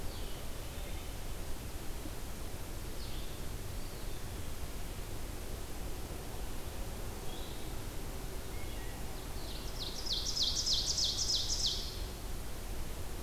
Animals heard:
Ovenbird (Seiurus aurocapilla), Blue-headed Vireo (Vireo solitarius), Eastern Wood-Pewee (Contopus virens)

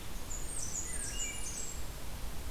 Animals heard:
Wood Thrush (Hylocichla mustelina), Blackburnian Warbler (Setophaga fusca)

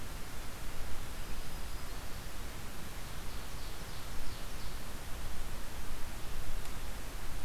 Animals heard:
Black-throated Green Warbler (Setophaga virens), Ovenbird (Seiurus aurocapilla)

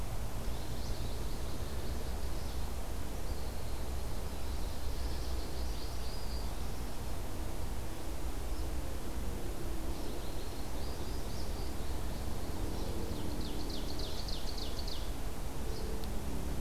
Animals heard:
American Goldfinch (Spinus tristis), Ovenbird (Seiurus aurocapilla)

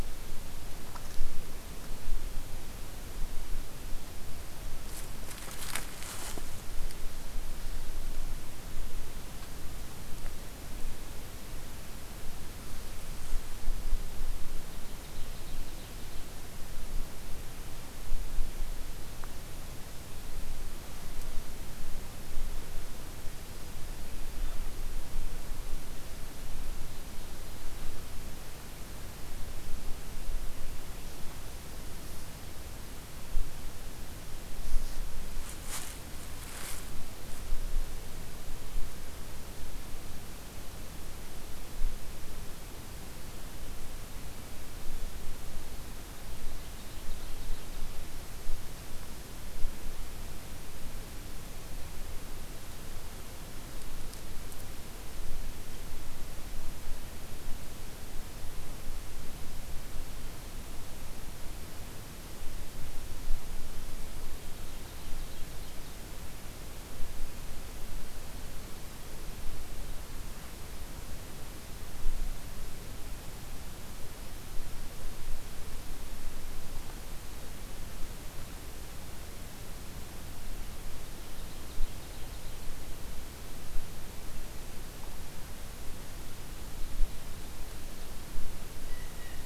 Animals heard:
Ovenbird (Seiurus aurocapilla), Blue Jay (Cyanocitta cristata)

